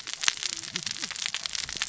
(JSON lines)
{"label": "biophony, cascading saw", "recorder": "SoundTrap 600 or HydroMoth"}